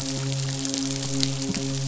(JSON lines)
{"label": "biophony, midshipman", "recorder": "SoundTrap 500"}